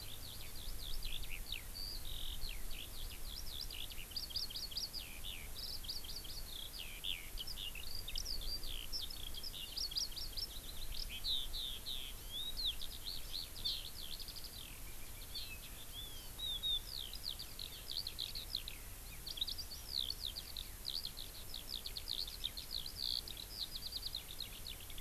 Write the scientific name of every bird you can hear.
Alauda arvensis, Chlorodrepanis virens